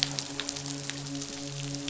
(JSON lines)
{"label": "biophony, midshipman", "recorder": "SoundTrap 500"}